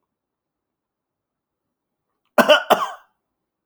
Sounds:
Cough